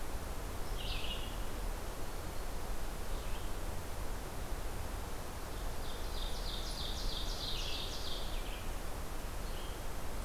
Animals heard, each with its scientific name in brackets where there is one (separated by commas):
Ovenbird (Seiurus aurocapilla), Red-eyed Vireo (Vireo olivaceus)